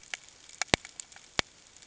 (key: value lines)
label: ambient
recorder: HydroMoth